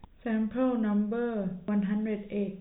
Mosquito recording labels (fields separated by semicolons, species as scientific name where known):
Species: no mosquito; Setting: cup